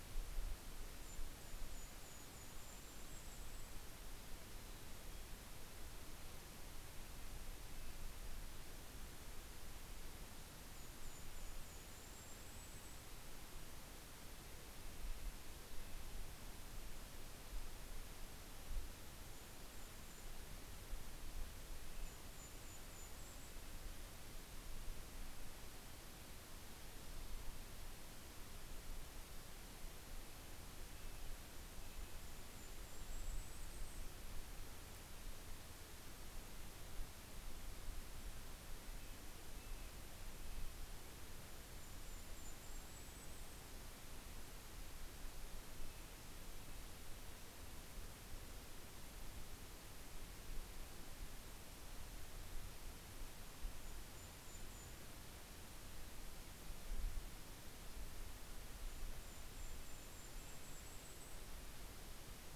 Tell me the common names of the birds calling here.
Golden-crowned Kinglet, Mountain Chickadee, Red-breasted Nuthatch